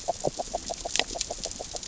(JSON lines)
{"label": "biophony, grazing", "recorder": "SoundTrap 600 or HydroMoth"}